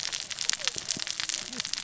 {"label": "biophony, cascading saw", "recorder": "SoundTrap 600 or HydroMoth"}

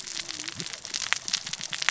{"label": "biophony, cascading saw", "recorder": "SoundTrap 600 or HydroMoth"}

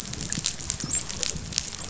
{"label": "biophony, dolphin", "recorder": "SoundTrap 500"}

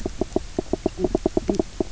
{"label": "biophony, knock croak", "recorder": "SoundTrap 300"}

